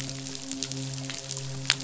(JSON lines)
{"label": "biophony, midshipman", "recorder": "SoundTrap 500"}